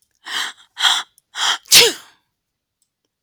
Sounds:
Sneeze